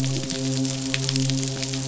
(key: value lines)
label: biophony, midshipman
recorder: SoundTrap 500